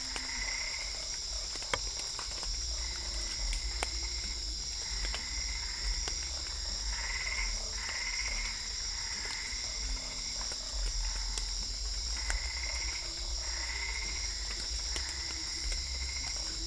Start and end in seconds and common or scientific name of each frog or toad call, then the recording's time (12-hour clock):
0.0	1.2	Boana albopunctata
0.0	3.5	Dendropsophus cruzi
0.0	16.6	Usina tree frog
2.8	6.3	Boana albopunctata
6.9	16.6	Boana albopunctata
7.2	12.3	Dendropsophus cruzi
14.3	16.6	Dendropsophus cruzi
8:30pm